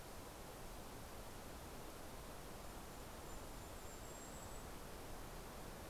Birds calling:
Golden-crowned Kinglet (Regulus satrapa)

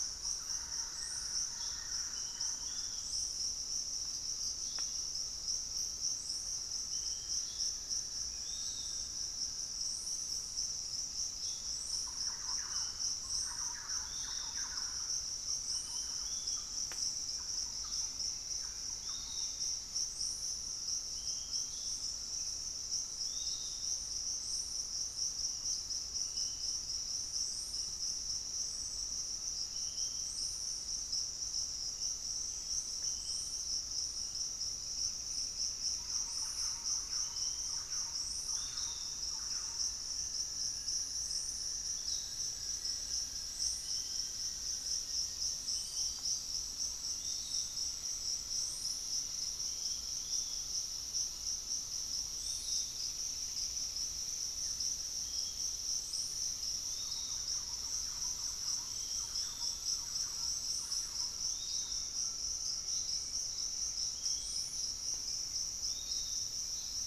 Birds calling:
unidentified bird
Screaming Piha (Lipaugus vociferans)
Black-faced Antthrush (Formicarius analis)
Piratic Flycatcher (Legatus leucophaius)
Fasciated Antshrike (Cymbilaimus lineatus)
Gray Antwren (Myrmotherula menetriesii)
Buff-throated Woodcreeper (Xiphorhynchus guttatus)
Thrush-like Wren (Campylorhynchus turdinus)
Pygmy Antwren (Myrmotherula brachyura)

